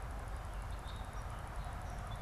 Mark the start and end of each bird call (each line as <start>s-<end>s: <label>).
0.0s-2.2s: Song Sparrow (Melospiza melodia)